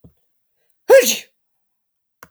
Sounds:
Sneeze